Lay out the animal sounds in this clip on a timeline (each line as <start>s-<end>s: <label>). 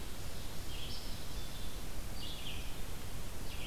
0.0s-3.7s: Red-eyed Vireo (Vireo olivaceus)
0.9s-2.0s: Black-capped Chickadee (Poecile atricapillus)